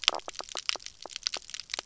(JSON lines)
{"label": "biophony, knock croak", "recorder": "SoundTrap 300"}